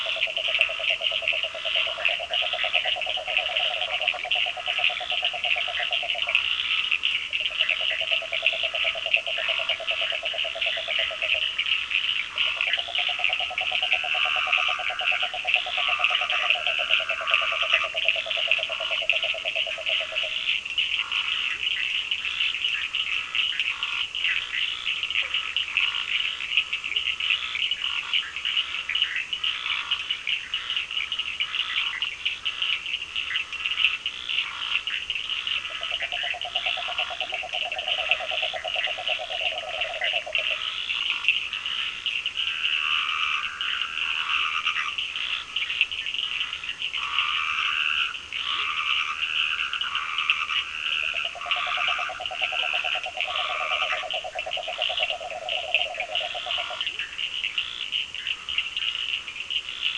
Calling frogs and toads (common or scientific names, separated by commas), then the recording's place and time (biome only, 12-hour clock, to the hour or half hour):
yellow cururu toad, Scinax perereca, Cochran's lime tree frog, Bischoff's tree frog, Dendropsophus nahdereri
Atlantic Forest, 7:30pm